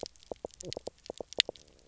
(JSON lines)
{"label": "biophony, knock croak", "recorder": "SoundTrap 300"}